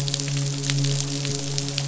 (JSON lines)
{"label": "biophony, midshipman", "recorder": "SoundTrap 500"}